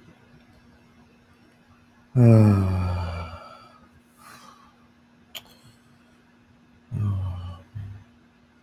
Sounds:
Sigh